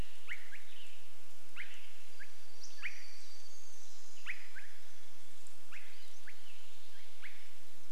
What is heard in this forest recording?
Western Tanager song, Swainson's Thrush call, warbler song